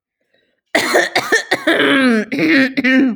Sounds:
Throat clearing